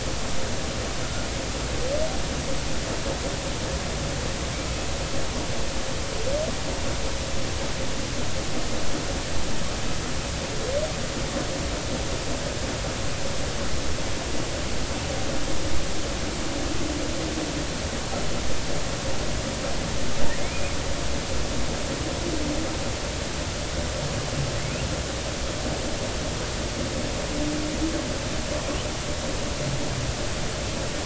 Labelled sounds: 20.4	20.7	humpback whale, 2.0 to 2.6 kHz

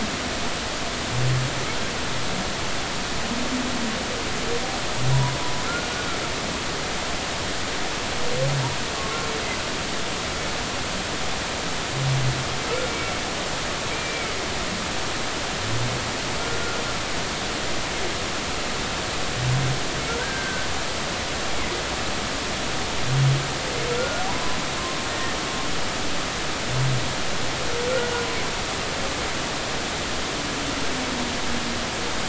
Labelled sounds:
13.9	14.3	humpback whale, 2.1 to 2.5 kHz
16.4	16.8	humpback whale, 1.3 to 1.5 kHz
20.2	20.7	humpback whale, 1.4 to 1.7 kHz
23.9	24.6	humpback whale, 0.80 to 1.5 kHz
25.1	25.4	humpback whale, 1.8 to 1.9 kHz
28.1	28.4	humpback whale, 0.93 to 1.1 kHz

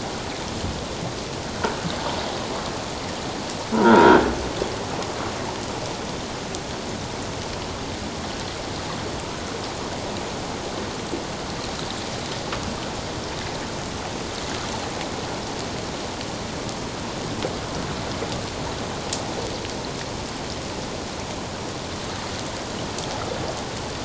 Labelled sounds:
3.7	4.2	croaking sound likely from a nearby submerged object, 1.2 to 1.7 kHz

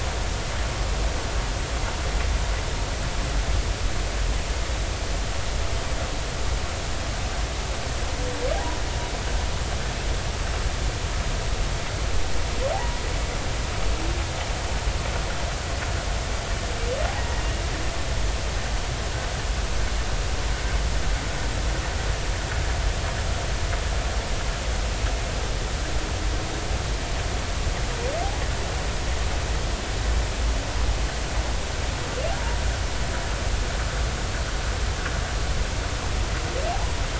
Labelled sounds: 12.7	13.0	humpback whale, 0.80 to 1.0 kHz
17.2	17.4	humpback whale, 1.8 to 2.0 kHz

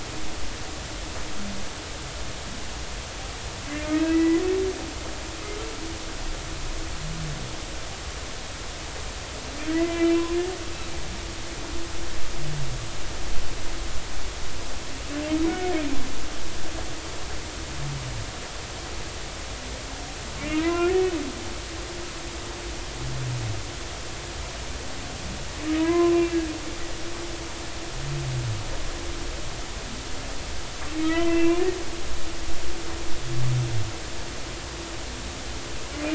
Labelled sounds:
4.1	4.4	humpback whale, 1.9 to 2.1 kHz
9.7	10.2	humpback whale, 0.93 to 2.4 kHz
15.5	15.7	humpback whale, 1.4 to 2.3 kHz
20.4	20.9	humpback whale, 0.93 to 2.9 kHz
25.7	26.4	humpback whale, 0.93 to 2.8 kHz
31.0	31.7	humpback whale, 0.93 to 2.8 kHz

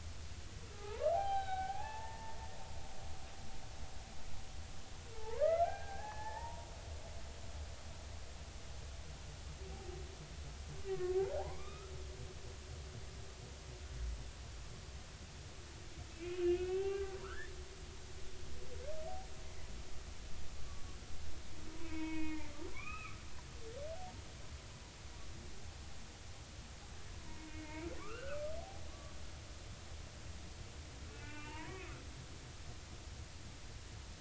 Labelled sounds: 0.7	2.4	humpback whale, 0.80 to 4.0 kHz
5.1	6.7	humpback whale, 0.80 to 2.1 kHz
10.8	11.9	humpback whale, 0.80 to 2.5 kHz
16.3	17.5	humpback whale, 0.80 to 3.2 kHz
19.4	19.7	humpback whale, 1.9 to 2.1 kHz
21.8	23.2	humpback whale, 0.86 to 2.7 kHz
27.4	29.1	humpback whale, 0.99 to 2.9 kHz
31.1	32.5	humpback whale, 0.86 to 2.9 kHz

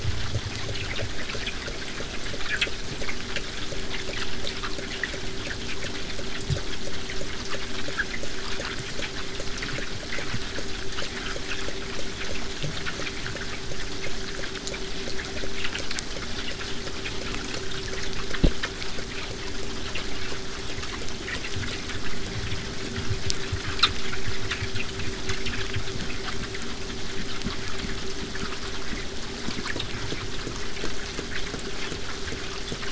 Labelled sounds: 24.6	29.6	vessel noise, 0 to 8.0 kHz

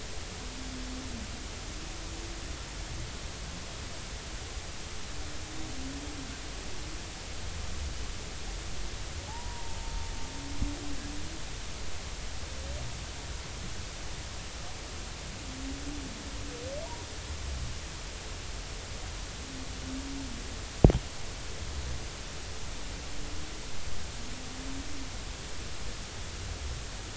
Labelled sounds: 9.3	9.8	humpback whale, 0.80 to 1.0 kHz

